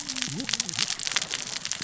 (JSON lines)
{"label": "biophony, cascading saw", "recorder": "SoundTrap 600 or HydroMoth"}